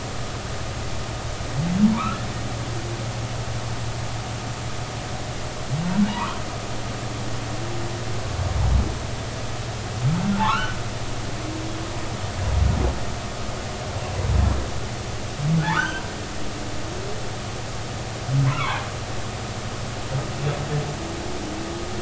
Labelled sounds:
1.9	2.2	humpback whale, 0.90 to 1.5 kHz
6.1	6.4	humpback whale, 0.86 to 1.4 kHz
10.4	10.8	humpback whale, 0.80 to 3.1 kHz
15.6	16.0	humpback whale, 0.80 to 3.2 kHz
18.5	18.8	humpback whale, 0.80 to 2.4 kHz

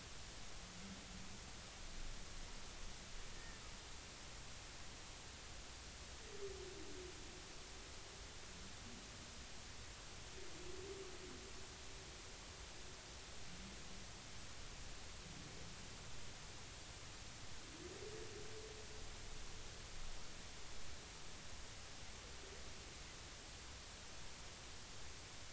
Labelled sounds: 3.4	3.6	humpback whale, 1.7 to 1.9 kHz

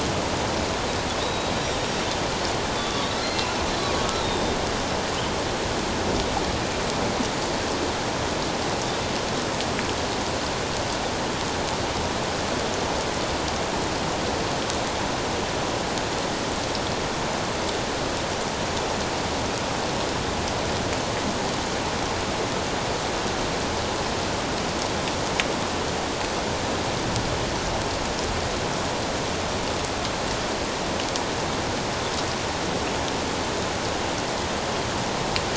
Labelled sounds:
1.2	1.9	Pacific white-sided dolphin, 3.6 to 5.8 kHz
2.8	4.6	Pacific white-sided dolphin, 1.1 to 4.2 kHz

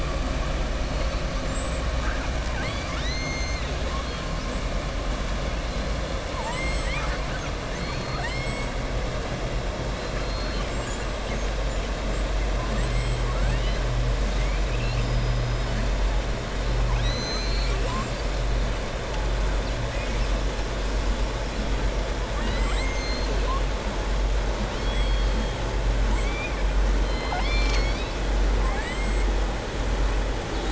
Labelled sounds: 2.4	3.8	killer whale, southern resident, 0.92 to 6.4 kHz
6.2	7.5	killer whale, southern resident, 0.87 to 7.9 kHz
8.1	8.7	killer whale, southern resident, 7.3 to 8.0 kHz
12.6	13.8	killer whale, southern resident, 0.80 to 7.9 kHz
24.7	25.5	killer whale, southern resident, 3.0 to 5.0 kHz
26.1	26.6	killer whale, southern resident, 1.8 to 3.6 kHz
27.0	28.2	killer whale, southern resident, 0.78 to 7.4 kHz
28.5	29.2	killer whale, southern resident, 0.80 to 4.0 kHz

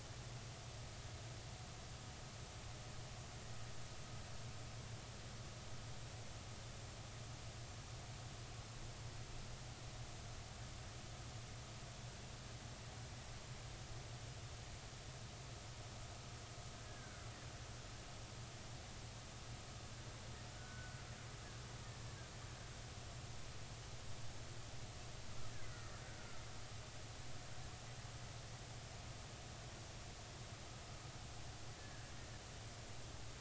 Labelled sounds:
16.8	17.2	killer whale, Bigg's (transient), 1.4 to 1.7 kHz
20.5	21.0	killer whale, Bigg's (transient), 1.3 to 1.6 kHz
25.6	26.0	killer whale, Bigg's (transient), 1.7 to 2.1 kHz
31.8	32.1	killer whale, Bigg's (transient), 1.5 to 1.9 kHz

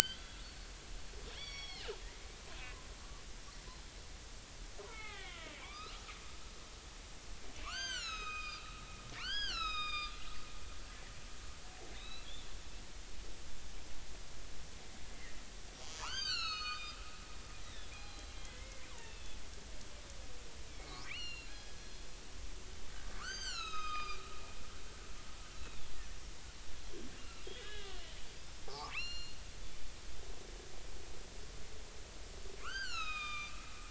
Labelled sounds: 0.0	0.4	killer whale, northern resident, 3.3 to 3.5 kHz
1.0	2.0	killer whale, northern resident, 1.1 to 5.8 kHz
4.9	6.0	killer whale, northern resident, 0.80 to 4.2 kHz
7.5	10.1	killer whale, northern resident, 0.96 to 7.9 kHz
12.0	13.3	killer whale, northern resident, 2.5 to 4.1 kHz
16.0	19.3	killer whale, northern resident, 0.80 to 8.0 kHz
20.7	22.1	killer whale, northern resident, 1.6 to 7.1 kHz
23.2	24.2	killer whale, northern resident, 1.0 to 7.9 kHz
25.6	25.8	killer whale, northern resident, 2.4 to 2.7 kHz
27.2	30.3	killer whale, northern resident, 0.80 to 7.1 kHz
32.6	33.5	killer whale, northern resident, 1.0 to 7.6 kHz

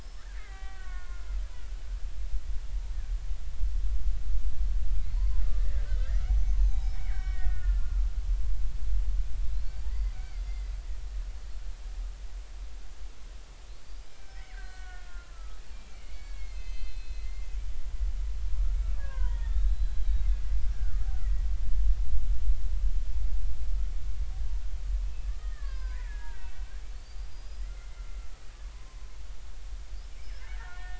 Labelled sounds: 0.0	1.3	killer whale, Bigg's (transient), 0.80 to 5.4 kHz
5.1	8.0	killer whale, Bigg's (transient), 0.80 to 6.4 kHz
9.8	10.7	killer whale, Bigg's (transient), 1.8 to 4.9 kHz
13.8	17.5	killer whale, Bigg's (transient), 1.0 to 6.3 kHz
18.7	20.3	killer whale, Bigg's (transient), 0.86 to 4.1 kHz
25.3	26.5	killer whale, Bigg's (transient), 0.93 to 5.1 kHz
26.9	27.9	killer whale, Bigg's (transient), 1.3 to 5.1 kHz
28.7	29.1	killer whale, Bigg's (transient), 0.96 to 1.1 kHz
30.2	30.9	killer whale, Bigg's (transient), 1.3 to 5.4 kHz

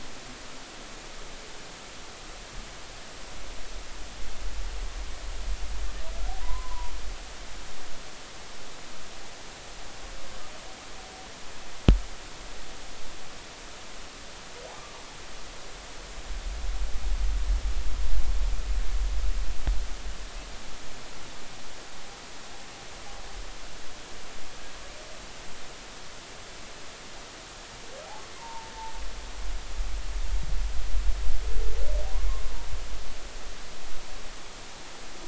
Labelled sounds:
6.4	6.9	humpback whale, 0.90 to 1.1 kHz
14.7	15.0	humpback whale, 1.1 to 1.2 kHz
28.3	28.7	humpback whale, 0.83 to 1.1 kHz

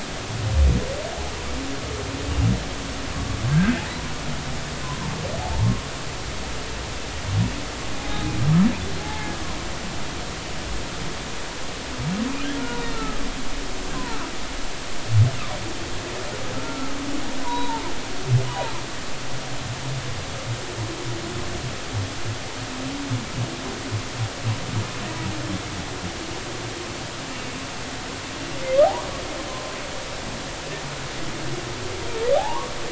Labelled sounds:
3.5	3.8	humpback whale, 1.4 to 1.7 kHz
8.0	8.3	humpback whale, 0.80 to 0.86 kHz
9.0	9.3	humpback whale, 0.80 to 0.93 kHz
12.6	12.9	humpback whale, 1.4 to 1.5 kHz
13.9	14.2	humpback whale, 0.86 to 1.1 kHz
16.5	17.0	humpback whale, 1.2 to 1.4 kHz
17.4	18.8	humpback whale, 0.83 to 3.9 kHz
19.5	19.7	humpback whale, 0.86 to 1.0 kHz
30.5	30.8	humpback whale, 0.99 to 1.1 kHz
32.3	32.7	humpback whale, 0.80 to 1.2 kHz

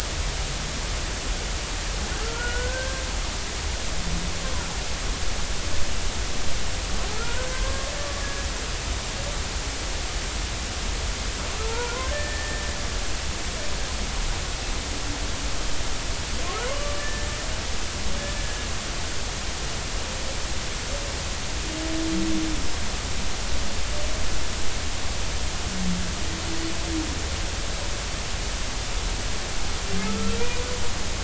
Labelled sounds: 2.2	3.0	humpback whale, 1.2 to 1.6 kHz
7.2	7.9	humpback whale, 0.90 to 1.7 kHz
8.2	8.5	humpback whale, 1.6 to 1.7 kHz
11.6	12.7	humpback whale, 0.86 to 1.9 kHz
16.6	17.3	humpback whale, 0.93 to 1.9 kHz

